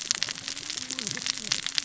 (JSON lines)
{"label": "biophony, cascading saw", "recorder": "SoundTrap 600 or HydroMoth"}